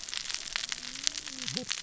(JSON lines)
{"label": "biophony, cascading saw", "recorder": "SoundTrap 600 or HydroMoth"}